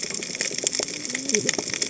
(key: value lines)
label: biophony, cascading saw
recorder: HydroMoth